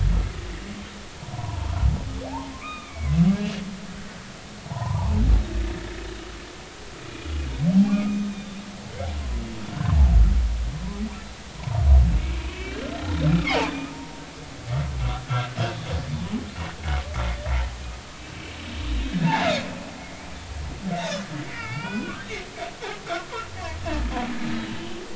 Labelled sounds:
1.3	3.1	humpback whale, 0.80 to 3.9 kHz
4.6	5.2	humpback whale, 0.80 to 1.2 kHz
7.9	9.0	humpback whale, 0.80 to 3.7 kHz
12.4	14.2	humpback whale, 0.80 to 3.2 kHz
18.2	18.5	humpback whale, 2.6 to 2.8 kHz
19.1	19.5	humpback whale, 1.6 to 1.8 kHz
20.0	20.3	humpback whale, 2.0 to 2.4 kHz
21.0	21.2	humpback whale, 3.4 to 4.0 kHz
21.5	22.2	humpback whale, 1.2 to 3.0 kHz
24.5	25.0	humpback whale, 2.8 to 3.1 kHz

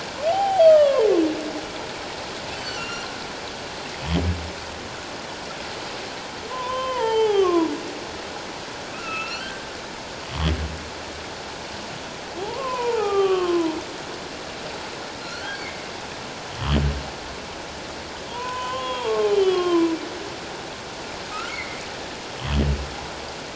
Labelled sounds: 0.3	1.1	humpback whale, 0.78 to 3.3 kHz
2.6	3.1	humpback whale, 2.7 to 7.2 kHz
6.5	7.7	humpback whale, 0.78 to 3.5 kHz
8.9	9.7	humpback whale, 1.2 to 3.4 kHz
12.4	13.8	humpback whale, 0.78 to 3.3 kHz
15.2	15.9	humpback whale, 1.3 to 4.5 kHz
18.3	19.9	humpback whale, 0.78 to 3.4 kHz
21.5	21.8	humpback whale, 2.0 to 2.3 kHz

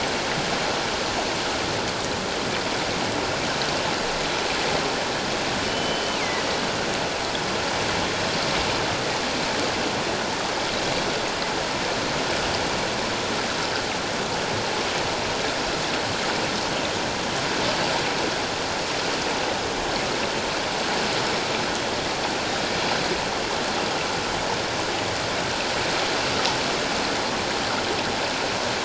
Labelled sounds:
5.6	6.4	killer whale, northern resident, G clan, GG subclan, call N23ii, 1.9 to 3.1 kHz

